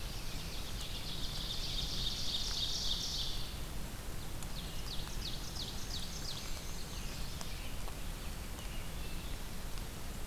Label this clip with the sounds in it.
Ovenbird, Black-and-white Warbler